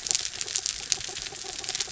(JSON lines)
{"label": "anthrophony, mechanical", "recorder": "SoundTrap 300"}